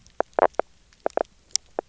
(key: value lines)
label: biophony, knock croak
recorder: SoundTrap 300